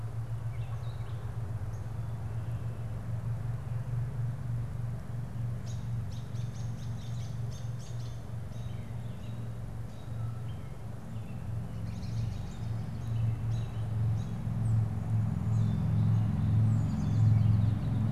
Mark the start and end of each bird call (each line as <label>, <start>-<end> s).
Gray Catbird (Dumetella carolinensis), 0.0-2.0 s
American Robin (Turdus migratorius), 5.3-16.0 s
American Robin (Turdus migratorius), 16.6-18.1 s